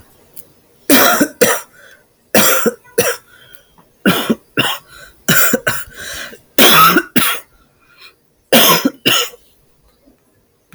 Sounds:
Cough